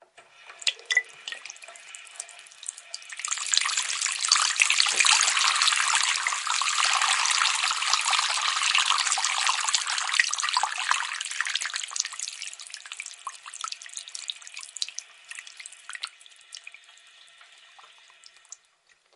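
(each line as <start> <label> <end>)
0.5 Running water. 16.8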